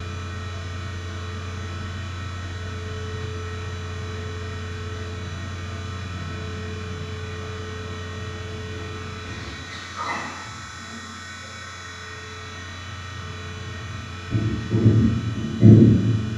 Is the sound of the object dropping near?
no